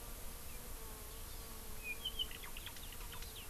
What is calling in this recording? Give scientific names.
Chlorodrepanis virens, Drepanis coccinea